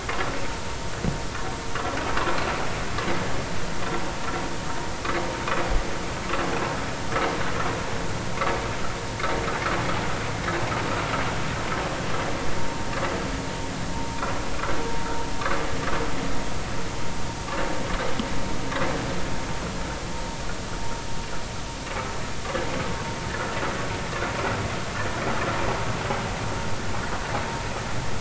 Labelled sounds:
13.9	14.2	vessel noise, 0.86 to 1.0 kHz

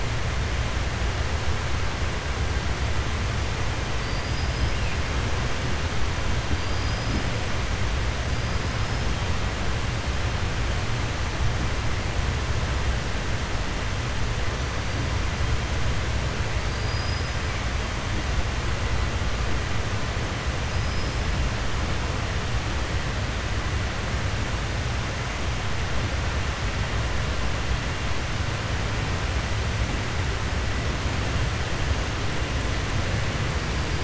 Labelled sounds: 4.0	4.7	killer whale, 4.6 to 5.2 kHz
6.6	7.2	killer whale, 4.7 to 5.9 kHz
16.6	17.4	killer whale, 4.6 to 5.5 kHz
20.7	21.2	killer whale, 5.0 to 5.3 kHz

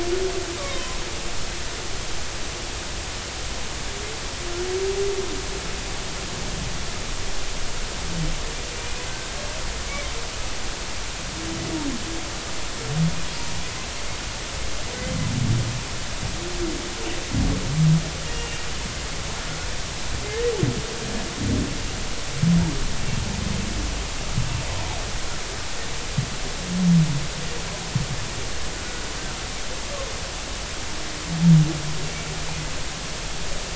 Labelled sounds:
0.6	1.0	humpback whale, 0.96 to 1.2 kHz
8.8	9.0	humpback whale, 2.3 to 2.5 kHz
18.3	18.7	humpback whale, 2.7 to 2.9 kHz

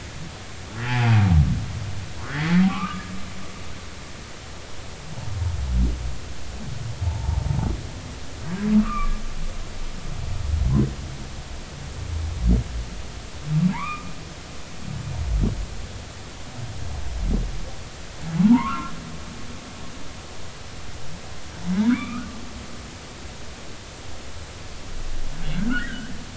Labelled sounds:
0.9	1.2	humpback whale, 0.80 to 3.4 kHz
2.6	3.1	humpback whale, 0.80 to 1.4 kHz
7.0	7.4	humpback whale, 0.80 to 0.96 kHz
8.8	9.2	humpback whale, 1.1 to 2.5 kHz
13.7	14.1	humpback whale, 0.80 to 2.5 kHz
18.4	18.9	humpback whale, 0.80 to 1.5 kHz
21.7	22.2	humpback whale, 1.1 to 2.5 kHz
25.7	26.1	humpback whale, 1.2 to 2.0 kHz

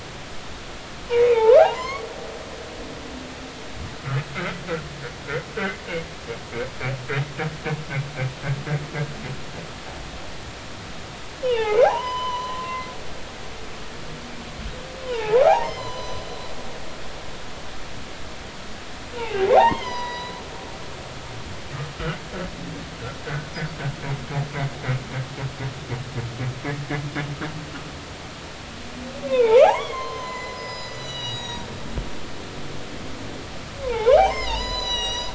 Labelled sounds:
1.3	2.1	humpback whale, 0.80 to 4.5 kHz
11.4	12.8	humpback whale, 0.80 to 5.1 kHz
15.0	16.3	humpback whale, 0.80 to 6.2 kHz
19.1	20.4	humpback whale, 0.80 to 6.3 kHz
23.2	23.5	humpback whale, 1.4 to 1.6 kHz
29.3	31.7	humpback whale, 0.80 to 7.2 kHz
33.8	35.3	humpback whale, 0.80 to 8.0 kHz

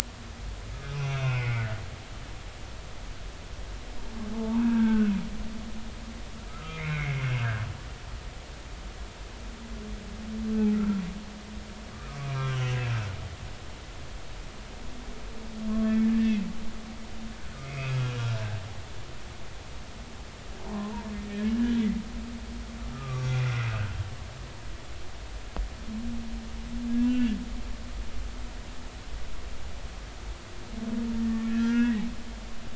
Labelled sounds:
0.7	1.7	humpback whale, 1.2 to 5.3 kHz
4.3	5.1	humpback whale, 0.80 to 1.7 kHz
6.5	7.2	humpback whale, 1.2 to 2.5 kHz
12.2	12.8	humpback whale, 1.0 to 3.4 kHz
15.7	16.5	humpback whale, 1.0 to 2.8 kHz
17.7	18.4	humpback whale, 1.3 to 3.3 kHz
20.7	21.9	humpback whale, 0.80 to 3.5 kHz
22.9	23.4	humpback whale, 1.1 to 5.8 kHz
27.0	27.4	humpback whale, 2.6 to 2.9 kHz
31.5	32.0	humpback whale, 1.3 to 2.0 kHz

